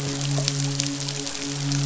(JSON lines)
{"label": "biophony, midshipman", "recorder": "SoundTrap 500"}